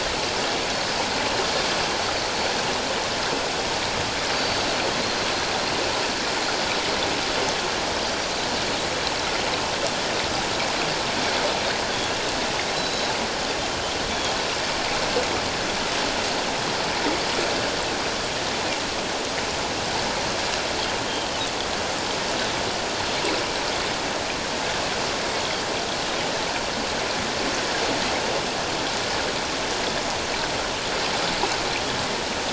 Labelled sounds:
4.3	4.7	Pacific white-sided dolphin, 4.5 to 4.7 kHz
12.7	13.1	Pacific white-sided dolphin, 3.8 to 4.1 kHz

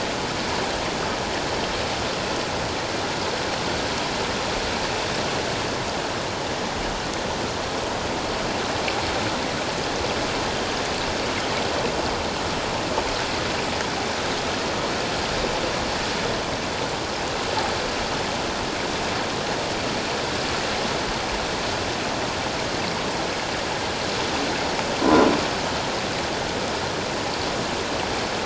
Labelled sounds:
25.0	25.3	croaking sound likely from a nearby submerged object, 0.94 to 1.1 kHz

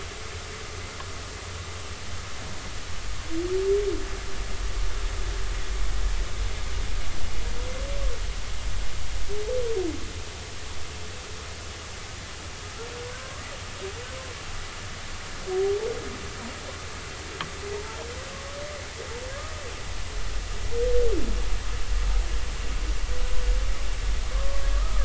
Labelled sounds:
17.7	18.0	humpback whale, 0.86 to 0.99 kHz
24.3	25.0	humpback whale, 1.0 to 1.3 kHz

